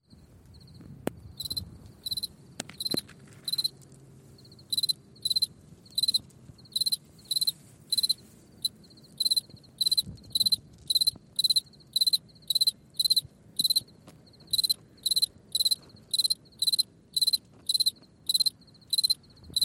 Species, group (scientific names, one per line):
Gryllus campestris
Orthoptera